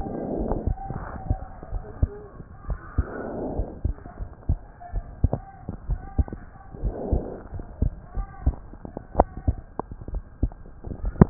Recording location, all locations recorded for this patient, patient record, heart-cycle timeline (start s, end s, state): pulmonary valve (PV)
aortic valve (AV)+pulmonary valve (PV)+tricuspid valve (TV)+mitral valve (MV)
#Age: Child
#Sex: Male
#Height: 104.0 cm
#Weight: 19.8 kg
#Pregnancy status: False
#Murmur: Absent
#Murmur locations: nan
#Most audible location: nan
#Systolic murmur timing: nan
#Systolic murmur shape: nan
#Systolic murmur grading: nan
#Systolic murmur pitch: nan
#Systolic murmur quality: nan
#Diastolic murmur timing: nan
#Diastolic murmur shape: nan
#Diastolic murmur grading: nan
#Diastolic murmur pitch: nan
#Diastolic murmur quality: nan
#Outcome: Normal
#Campaign: 2015 screening campaign
0.00	1.65	unannotated
1.65	1.84	S1
1.84	1.98	systole
1.98	2.12	S2
2.12	2.63	diastole
2.63	2.80	S1
2.80	2.94	systole
2.94	3.10	S2
3.10	3.54	diastole
3.54	3.69	S1
3.69	3.82	systole
3.82	3.98	S2
3.98	4.15	diastole
4.15	4.29	S1
4.29	4.43	systole
4.43	4.59	S2
4.59	4.90	diastole
4.90	5.06	S1
5.06	5.19	systole
5.19	5.34	S2
5.34	5.84	diastole
5.84	6.02	S1
6.02	6.15	systole
6.15	6.31	S2
6.31	6.77	diastole
6.77	6.95	S1
6.95	7.09	systole
7.09	7.26	S2
7.26	7.50	diastole
7.50	7.64	S1
7.64	7.78	systole
7.78	7.94	S2
7.94	8.13	diastole
8.13	8.28	S1
8.28	8.42	systole
8.42	8.58	S2
8.58	9.11	diastole
9.11	9.30	S1
9.30	9.44	systole
9.44	9.58	S2
9.58	10.07	diastole
10.07	10.24	S1
10.24	10.37	systole
10.37	10.54	S2
10.54	10.97	diastole
10.97	11.14	S1
11.14	11.30	unannotated